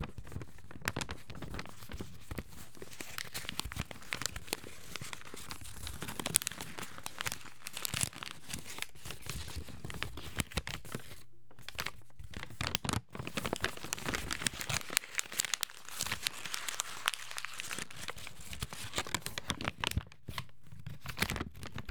Is anyone moving some papers?
yes